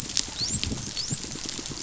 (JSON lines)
{"label": "biophony, dolphin", "recorder": "SoundTrap 500"}